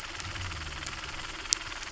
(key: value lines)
label: anthrophony, boat engine
recorder: SoundTrap 300